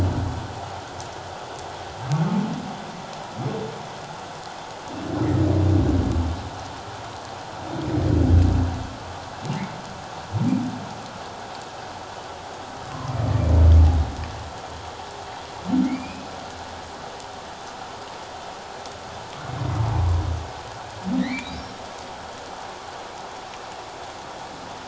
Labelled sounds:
15.8	16.3	humpback whale, 2.1 to 2.6 kHz
19.5	19.8	humpback whale, 2.0 to 2.2 kHz
21.2	21.8	humpback whale, 1.7 to 5.6 kHz

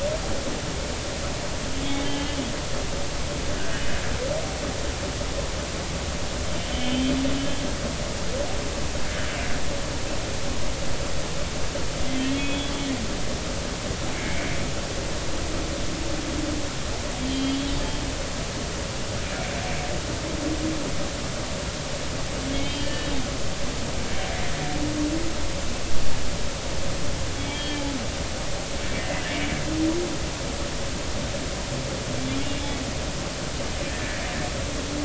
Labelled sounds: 1.8	2.4	humpback whale, 3.0 to 3.7 kHz
6.6	7.1	humpback whale, 3.0 to 3.3 kHz
12.1	12.7	humpback whale, 2.1 to 3.4 kHz
14.1	14.5	humpback whale, 2.1 to 2.4 kHz
17.3	17.7	humpback whale, 2.9 to 3.4 kHz
22.6	23.1	humpback whale, 1.7 to 3.2 kHz
27.4	27.9	humpback whale, 1.7 to 3.5 kHz
28.9	29.4	humpback whale, 1.5 to 2.1 kHz
33.9	34.2	humpback whale, 1.7 to 1.9 kHz

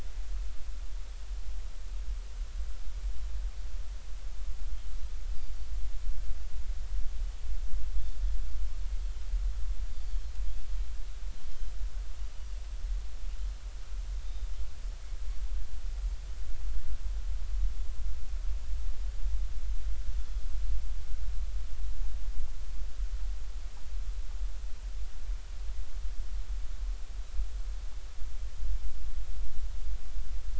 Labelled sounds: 9.9	10.2	Pacific white-sided dolphin, 4.2 to 4.7 kHz
20.2	20.4	Pacific white-sided dolphin, 3.3 to 3.5 kHz

